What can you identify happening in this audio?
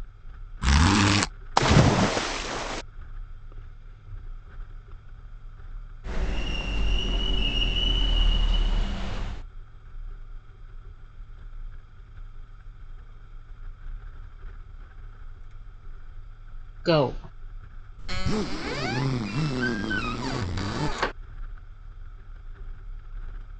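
At 0.61 seconds, the sound of a zipper comes through. Then, at 1.56 seconds, there is splashing. Later, at 6.03 seconds, a car can be heard. At 16.85 seconds, someone says "Go." At 17.98 seconds, a zipper is audible. Meanwhile, at 18.07 seconds, squeaking is heard.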